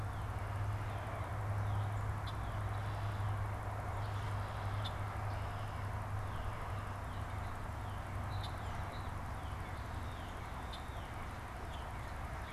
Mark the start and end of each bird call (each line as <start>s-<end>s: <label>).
0.0s-2.7s: Northern Cardinal (Cardinalis cardinalis)
2.0s-3.5s: Red-winged Blackbird (Agelaius phoeniceus)
3.9s-6.0s: Red-winged Blackbird (Agelaius phoeniceus)
6.1s-12.5s: Northern Cardinal (Cardinalis cardinalis)
8.2s-8.6s: Red-winged Blackbird (Agelaius phoeniceus)
10.5s-10.9s: Red-winged Blackbird (Agelaius phoeniceus)